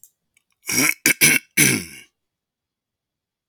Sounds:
Throat clearing